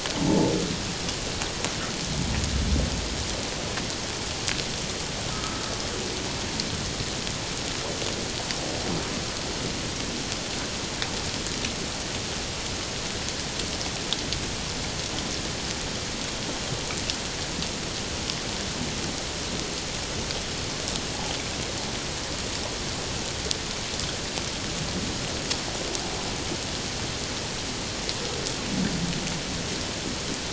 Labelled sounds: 0.3	0.5	humpback whale, 0.81 to 0.94 kHz
5.3	5.6	humpback whale, 1.2 to 1.4 kHz

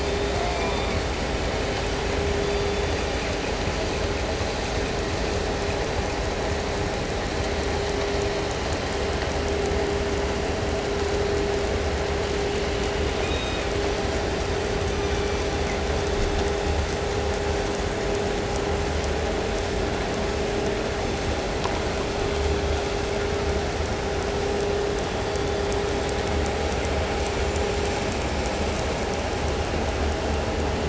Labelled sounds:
0.0	1.3	killer whale, southern resident, call S16, 0.16 to 5.4 kHz
2.2	3.6	killer whale, southern resident, call S16, 2.9 to 5.2 kHz
13.1	14.0	killer whale, southern resident, call S16, 1.7 to 6.7 kHz
14.7	15.8	killer whale, southern resident, call S16, 1.0 to 7.3 kHz
25.0	26.0	killer whale, 1.6 to 4.9 kHz

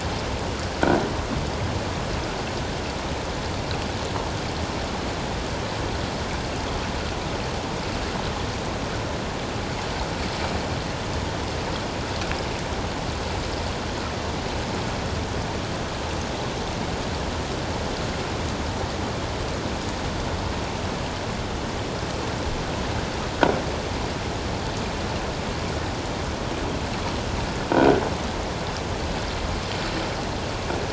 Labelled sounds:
27.7	28.0	croaking sound likely from a nearby submerged object, 1.4 to 1.6 kHz

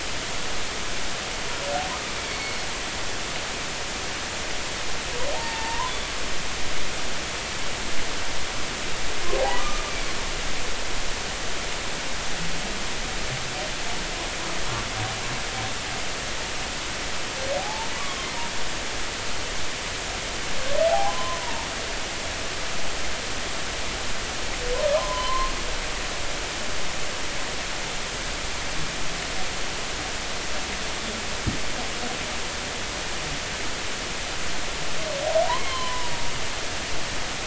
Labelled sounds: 2.2	2.7	humpback whale, 2.1 to 4.5 kHz
5.6	5.8	humpback whale, 1.8 to 1.9 kHz
6.3	6.9	humpback whale, 0.80 to 1.1 kHz
9.4	9.8	humpback whale, 0.80 to 1.2 kHz
17.6	17.9	humpback whale, 0.80 to 0.96 kHz
20.9	21.7	humpback whale, 0.80 to 1.1 kHz
24.8	25.5	humpback whale, 0.96 to 1.2 kHz
35.5	36.1	humpback whale, 0.90 to 3.2 kHz

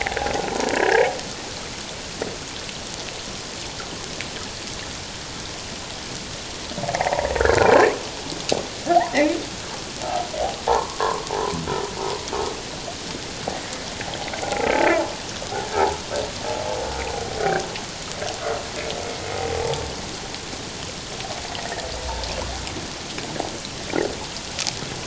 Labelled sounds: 1.1	1.8	humpback whale, 1.0 to 1.4 kHz
6.8	8.0	humpback whale, 0.78 to 2.4 kHz
10.7	11.0	humpback whale, 0.78 to 1.2 kHz
14.4	14.8	humpback whale, 0.78 to 1.5 kHz
15.7	16.0	humpback whale, 0.78 to 1.0 kHz
19.0	19.3	humpback whale, 2.1 to 2.2 kHz

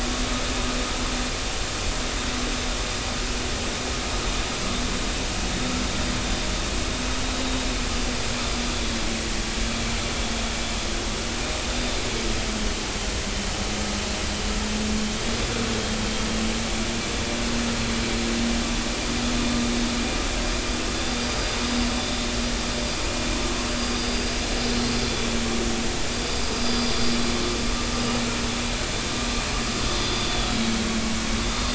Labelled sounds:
21.3	21.6	vessel noise, 4.8 to 4.9 kHz
25.1	25.4	vessel noise, 3.4 to 3.5 kHz
30.3	30.5	vessel noise, 3.3 to 3.6 kHz
31.4	31.7	vessel noise, 4.8 to 4.9 kHz

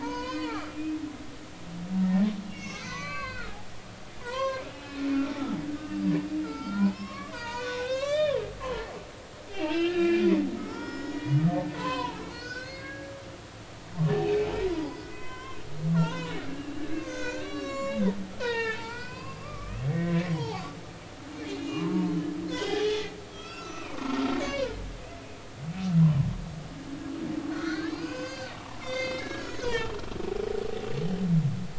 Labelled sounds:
0.0	0.8	humpback whale, 0.80 to 6.8 kHz
2.0	3.5	humpback whale, 0.96 to 6.7 kHz
4.2	5.1	humpback whale, 0.90 to 4.4 kHz
6.4	9.0	humpback whale, 0.80 to 7.6 kHz
9.5	13.2	humpback whale, 0.80 to 6.8 kHz
14.1	15.6	humpback whale, 0.93 to 5.8 kHz
16.0	18.0	humpback whale, 0.86 to 7.2 kHz
18.4	20.7	humpback whale, 0.80 to 5.5 kHz
21.6	23.0	humpback whale, 0.86 to 3.5 kHz
23.3	24.7	humpback whale, 0.90 to 6.8 kHz
27.5	28.5	humpback whale, 1.3 to 6.7 kHz
28.8	30.0	humpback whale, 0.83 to 6.5 kHz

